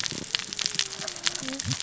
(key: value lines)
label: biophony, cascading saw
recorder: SoundTrap 600 or HydroMoth